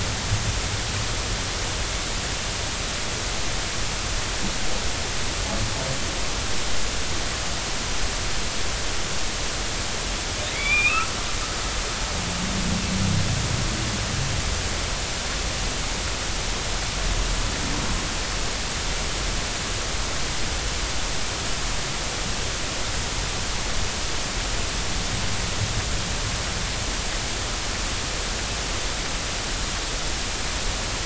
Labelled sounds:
10.5	11.1	humpback whale, 2.0 to 3.8 kHz

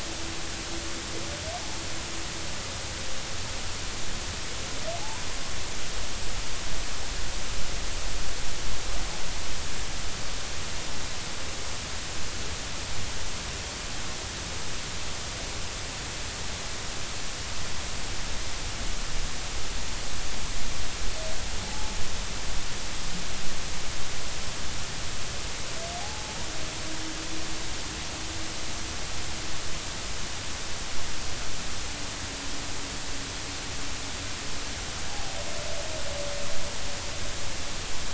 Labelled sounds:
5.0	5.3	humpback whale, 0.80 to 1.0 kHz
21.6	21.9	humpback whale, 0.80 to 0.90 kHz
26.0	26.3	humpback whale, 0.80 to 0.90 kHz
35.1	35.4	humpback whale, 0.80 to 0.93 kHz

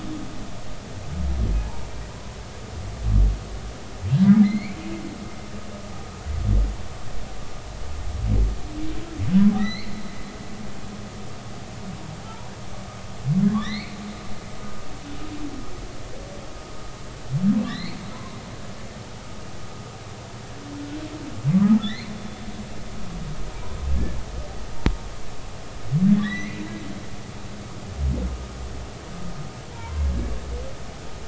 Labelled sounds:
1.6	1.9	humpback whale, 0.83 to 0.99 kHz
4.4	4.8	humpback whale, 2.0 to 4.6 kHz
9.5	9.9	humpback whale, 1.2 to 4.5 kHz
12.3	12.5	humpback whale, 0.83 to 1.1 kHz
13.5	14.0	humpback whale, 1.7 to 4.6 kHz
17.6	18.4	humpback whale, 0.93 to 4.6 kHz
21.8	22.1	humpback whale, 1.7 to 4.4 kHz
26.1	26.6	humpback whale, 1.6 to 4.1 kHz
29.7	30.1	humpback whale, 0.86 to 1.1 kHz

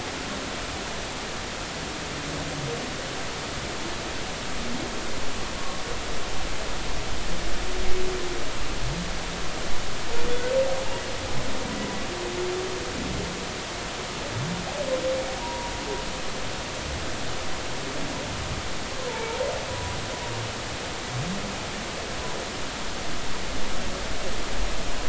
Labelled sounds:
15.4	15.7	humpback whale, 0.90 to 1.0 kHz
19.0	20.0	humpback whale, 0.83 to 1.1 kHz

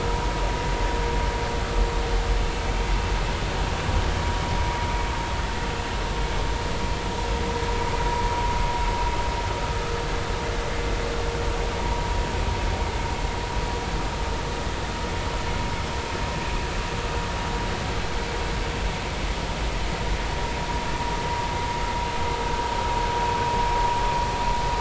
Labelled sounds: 11.8	12.1	vessel noise, 0.90 to 1.1 kHz

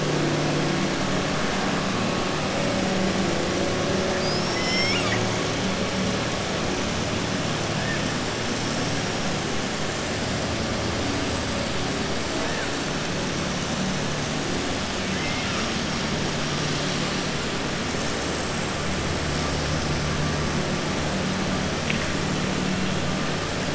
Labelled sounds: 4.1	5.2	killer whale, southern resident, 1.2 to 7.8 kHz
15.0	15.7	killer whale, southern resident, 1.2 to 3.7 kHz

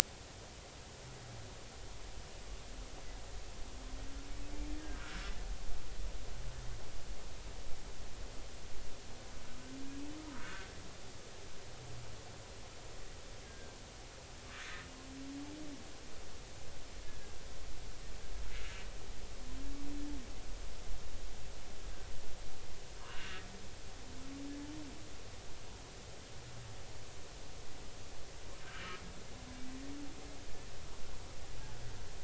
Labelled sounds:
4.8	5.2	humpback whale, 1.3 to 1.9 kHz
10.4	10.7	humpback whale, 1.2 to 1.6 kHz
13.5	13.8	humpback whale, 1.5 to 1.7 kHz
23.0	23.4	humpback whale, 1.3 to 2.9 kHz

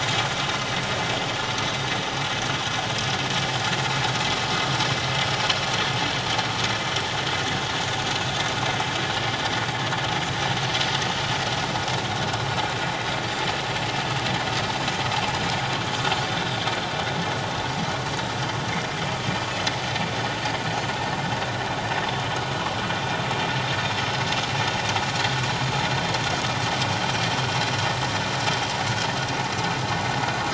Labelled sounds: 12.5	12.7	Pacific white-sided dolphin, 5.4 to 5.5 kHz

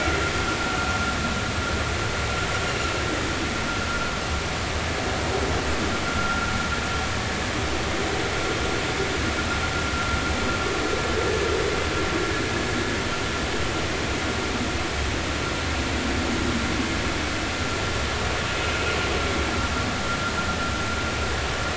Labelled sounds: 6.1	6.5	vessel noise, 1.3 to 1.5 kHz

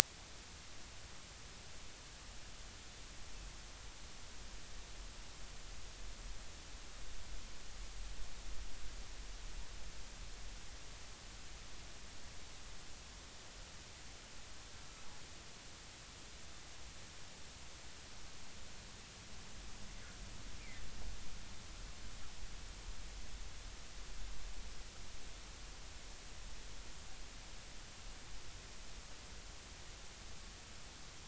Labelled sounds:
20.6	20.8	humpback whale, 2.0 to 2.5 kHz

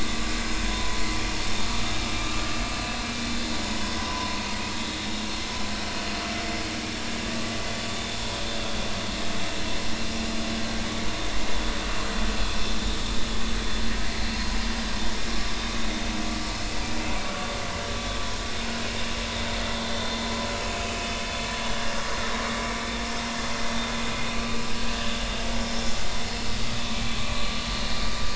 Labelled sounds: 0.7	1.0	vessel noise, 0.96 to 1.0 kHz
4.0	4.4	vessel noise, 0.90 to 1.1 kHz
7.9	8.6	vessel noise, 3.2 to 3.7 kHz
20.6	20.9	vessel noise, 2.4 to 2.7 kHz

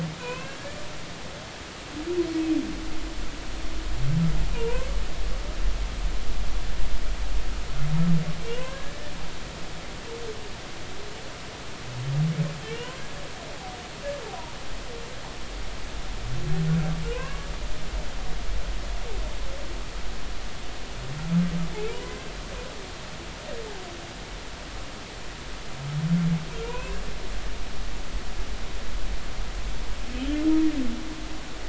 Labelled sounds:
0.2	0.8	humpback whale, 0.93 to 2.8 kHz
4.5	4.9	humpback whale, 0.90 to 1.1 kHz
8.6	9.1	humpback whale, 0.99 to 1.9 kHz
12.6	12.9	humpback whale, 2.6 to 3.1 kHz
17.1	17.5	humpback whale, 0.96 to 2.8 kHz
21.9	22.2	humpback whale, 0.93 to 1.1 kHz
26.6	27.0	humpback whale, 0.90 to 2.8 kHz

